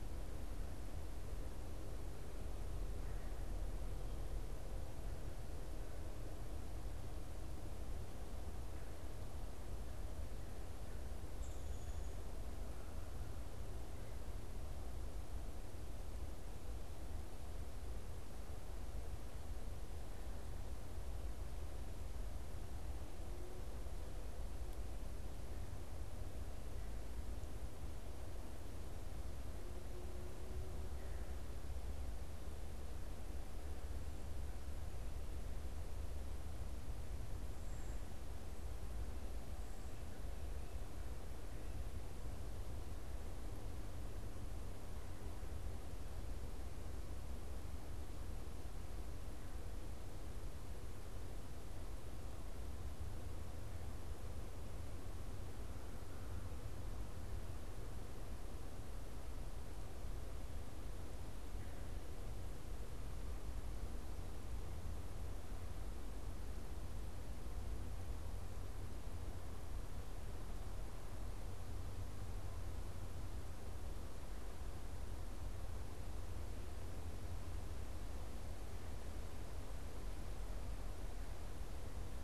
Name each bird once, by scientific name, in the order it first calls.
Dryobates pubescens